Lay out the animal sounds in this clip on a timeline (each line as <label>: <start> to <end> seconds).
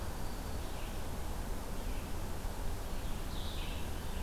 Blue-headed Vireo (Vireo solitarius): 0.0 to 4.2 seconds
Red-eyed Vireo (Vireo olivaceus): 0.0 to 4.2 seconds